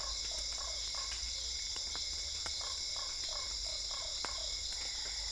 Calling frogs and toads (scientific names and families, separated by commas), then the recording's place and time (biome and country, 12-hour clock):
Boana lundii (Hylidae), Dendropsophus cruzi (Hylidae)
Cerrado, Brazil, 9:30pm